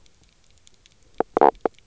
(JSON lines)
{"label": "biophony, knock croak", "recorder": "SoundTrap 300"}